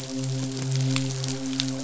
{"label": "biophony, midshipman", "recorder": "SoundTrap 500"}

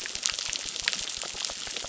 {"label": "biophony, crackle", "recorder": "SoundTrap 600"}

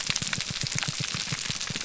{"label": "biophony", "recorder": "SoundTrap 300"}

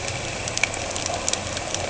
{"label": "anthrophony, boat engine", "recorder": "HydroMoth"}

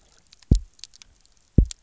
{"label": "biophony, double pulse", "recorder": "SoundTrap 300"}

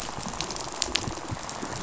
{"label": "biophony, rattle", "recorder": "SoundTrap 500"}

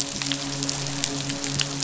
{"label": "biophony, midshipman", "recorder": "SoundTrap 500"}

